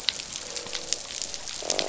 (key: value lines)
label: biophony, croak
recorder: SoundTrap 500